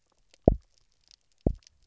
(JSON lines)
{"label": "biophony, double pulse", "recorder": "SoundTrap 300"}